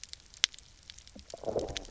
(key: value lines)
label: biophony, low growl
recorder: SoundTrap 300